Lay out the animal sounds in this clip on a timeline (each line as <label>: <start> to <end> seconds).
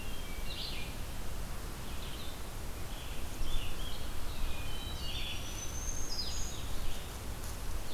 Hermit Thrush (Catharus guttatus): 0.0 to 0.8 seconds
Blue-headed Vireo (Vireo solitarius): 0.0 to 7.9 seconds
Red-eyed Vireo (Vireo olivaceus): 0.0 to 7.9 seconds
Hermit Thrush (Catharus guttatus): 4.2 to 5.4 seconds
Black-throated Green Warbler (Setophaga virens): 5.0 to 6.7 seconds